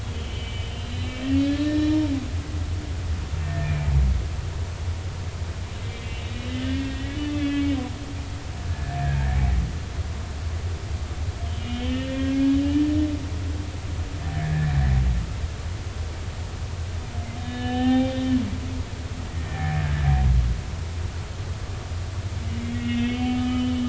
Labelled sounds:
0.0	1.1	humpback whale, 2.2 to 3.4 kHz
1.4	2.0	humpback whale, 1.6 to 4.3 kHz
3.4	3.9	humpback whale, 1.8 to 2.6 kHz
5.8	9.0	humpback whale, 1.5 to 3.6 kHz
11.6	12.9	humpback whale, 1.6 to 3.7 kHz
14.4	14.7	humpback whale, 1.6 to 2.0 kHz
17.4	18.4	humpback whale, 0.80 to 3.7 kHz
19.5	20.1	humpback whale, 0.80 to 2.0 kHz
22.6	23.8	humpback whale, 1.2 to 3.7 kHz

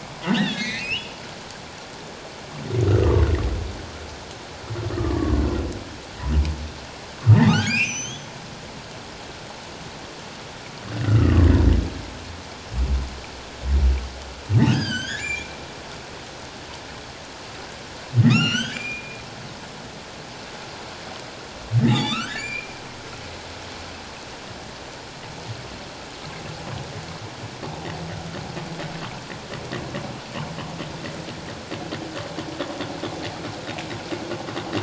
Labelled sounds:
0.3	1.1	humpback whale, 1.6 to 4.3 kHz
2.9	3.2	humpback whale, 1.0 to 1.6 kHz
4.9	5.4	humpback whale, 1.0 to 1.3 kHz
7.5	8.3	humpback whale, 1.1 to 6.7 kHz
11.0	11.5	humpback whale, 1.0 to 1.5 kHz
14.7	15.6	humpback whale, 1.4 to 8.0 kHz
18.3	19.2	humpback whale, 1.1 to 7.3 kHz
21.9	22.8	humpback whale, 1.1 to 4.8 kHz

